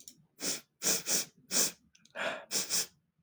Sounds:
Sniff